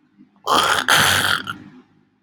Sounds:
Throat clearing